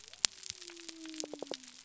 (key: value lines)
label: biophony
recorder: SoundTrap 300